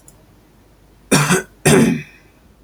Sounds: Cough